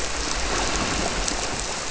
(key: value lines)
label: biophony
recorder: SoundTrap 300